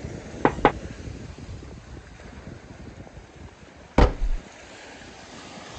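At 0.42 seconds, knocking can be heard. Later, at 3.96 seconds, a wooden drawer opens.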